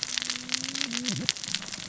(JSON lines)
{"label": "biophony, cascading saw", "recorder": "SoundTrap 600 or HydroMoth"}